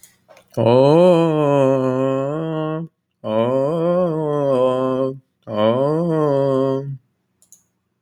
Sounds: Throat clearing